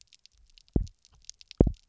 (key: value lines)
label: biophony, double pulse
recorder: SoundTrap 300